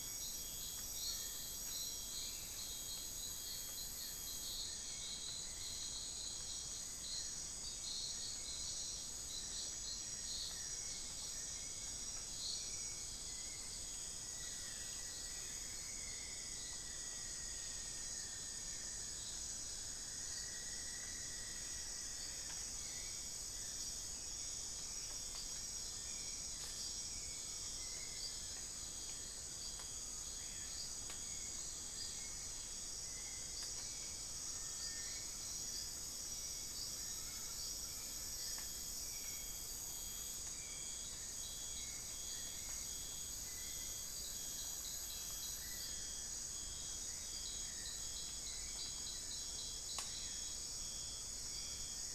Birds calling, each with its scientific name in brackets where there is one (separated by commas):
Rufous-fronted Antthrush (Formicarius rufifrons), unidentified bird, Black-billed Thrush (Turdus ignobilis), Hauxwell's Thrush (Turdus hauxwelli)